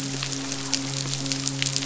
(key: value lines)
label: biophony, midshipman
recorder: SoundTrap 500